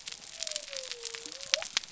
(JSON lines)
{"label": "biophony", "recorder": "SoundTrap 300"}